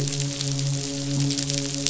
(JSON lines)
{"label": "biophony, midshipman", "recorder": "SoundTrap 500"}